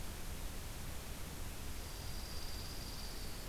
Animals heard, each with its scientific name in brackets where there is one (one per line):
Dark-eyed Junco (Junco hyemalis)